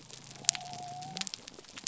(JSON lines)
{"label": "biophony", "recorder": "SoundTrap 300"}